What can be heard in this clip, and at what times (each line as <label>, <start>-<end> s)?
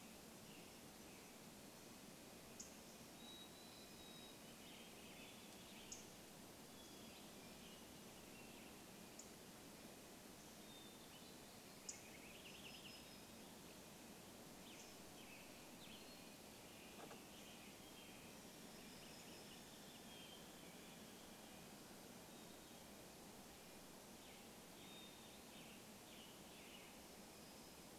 Western Tanager song, 0-2 s
Mountain Chickadee song, 2-6 s
unidentified bird chip note, 2-6 s
Warbling Vireo song, 4-6 s
Western Tanager song, 4-6 s
Hermit Thrush song, 6-8 s
Western Tanager song, 8-10 s
unidentified bird chip note, 8-12 s
Hermit Thrush song, 10-12 s
Warbling Vireo song, 12-14 s
unidentified sound, 12-14 s
Red-breasted Nuthatch song, 12-18 s
Western Tanager song, 14-18 s
Hermit Thrush song, 16-18 s
Warbling Vireo song, 18-20 s
unidentified sound, 18-20 s
Western Tanager song, 20-22 s
Red-breasted Nuthatch song, 20-24 s
Hermit Thrush song, 20-26 s
Western Tanager song, 24-28 s